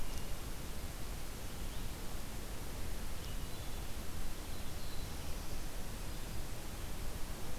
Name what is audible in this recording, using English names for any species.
Black-throated Blue Warbler